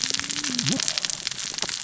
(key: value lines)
label: biophony, cascading saw
recorder: SoundTrap 600 or HydroMoth